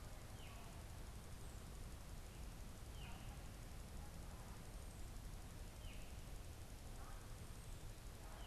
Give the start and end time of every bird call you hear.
[0.00, 8.47] unidentified bird

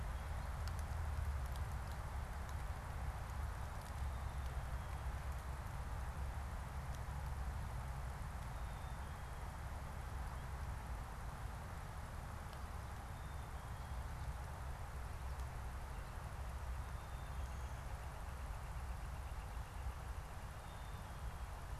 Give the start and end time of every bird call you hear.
[8.46, 9.46] Black-capped Chickadee (Poecile atricapillus)
[12.96, 14.15] Black-capped Chickadee (Poecile atricapillus)
[15.55, 20.86] Northern Flicker (Colaptes auratus)
[20.55, 21.75] Black-capped Chickadee (Poecile atricapillus)

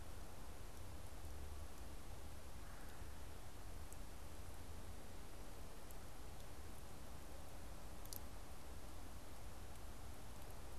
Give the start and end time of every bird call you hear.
[2.43, 3.13] Red-bellied Woodpecker (Melanerpes carolinus)

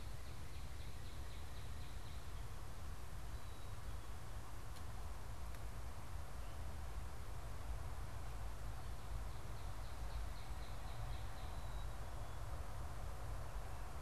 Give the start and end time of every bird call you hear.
[0.00, 2.42] Northern Cardinal (Cardinalis cardinalis)
[0.00, 14.02] Black-capped Chickadee (Poecile atricapillus)
[8.92, 11.72] Northern Cardinal (Cardinalis cardinalis)

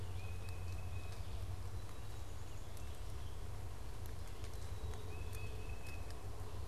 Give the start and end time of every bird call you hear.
[0.12, 1.22] Tufted Titmouse (Baeolophus bicolor)
[5.02, 6.12] Tufted Titmouse (Baeolophus bicolor)

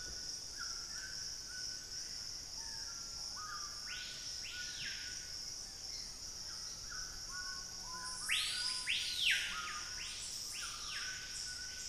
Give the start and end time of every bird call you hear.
[0.00, 11.88] Screaming Piha (Lipaugus vociferans)
[0.00, 11.88] White-throated Toucan (Ramphastos tucanus)
[5.82, 6.22] unidentified bird

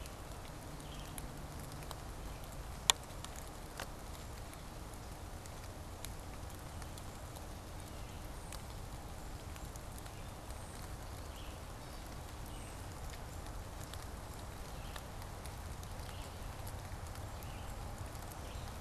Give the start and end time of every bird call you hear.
[0.00, 18.80] Red-eyed Vireo (Vireo olivaceus)

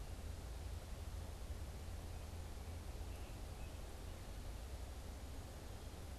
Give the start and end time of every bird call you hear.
[2.99, 4.59] American Robin (Turdus migratorius)

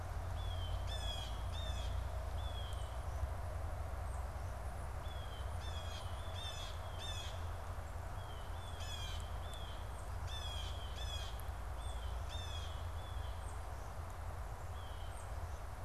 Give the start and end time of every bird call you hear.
[0.28, 13.38] Blue Jay (Cyanocitta cristata)
[3.38, 15.38] Tufted Titmouse (Baeolophus bicolor)
[14.58, 15.28] Blue Jay (Cyanocitta cristata)

